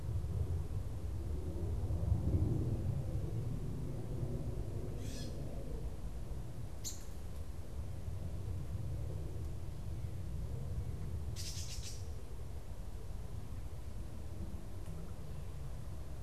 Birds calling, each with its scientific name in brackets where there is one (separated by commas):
Gray Catbird (Dumetella carolinensis)